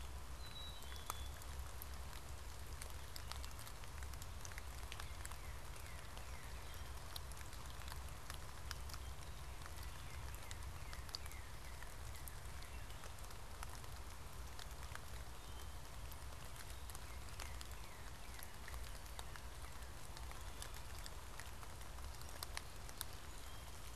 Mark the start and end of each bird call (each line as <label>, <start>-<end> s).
Black-capped Chickadee (Poecile atricapillus), 0.2-1.5 s
Northern Cardinal (Cardinalis cardinalis), 4.4-7.3 s
Northern Cardinal (Cardinalis cardinalis), 9.3-12.6 s
Northern Cardinal (Cardinalis cardinalis), 16.7-20.1 s